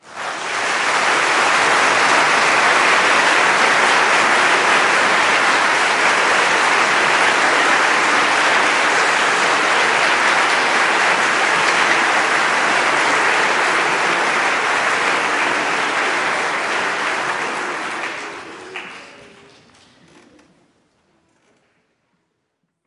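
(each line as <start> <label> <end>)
0.0 An audience claps loudly and continuously, with overlapping applause that gradually fades. 20.5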